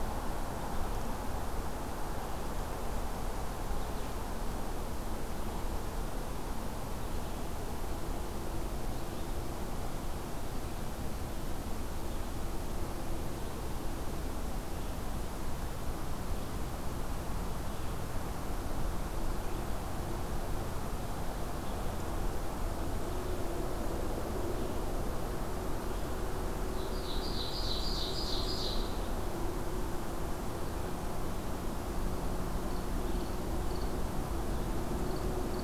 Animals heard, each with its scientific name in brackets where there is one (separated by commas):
Ovenbird (Seiurus aurocapilla)